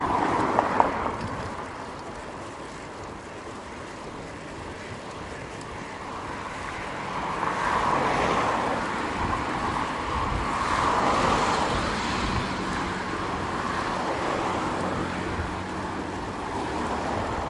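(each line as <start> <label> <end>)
0.0 A vehicle whooshes by closely. 0.9
0.6 Wooden clacks in a rhythmic pattern. 1.2
1.2 Silent crackling mixed with traffic noise. 6.8
6.8 Rustling white noise from a moderately busy road in the background. 17.5
6.9 A vehicle drives by with a whooshing sound. 9.2
10.3 A vehicle drives by with a whooshing sound. 12.4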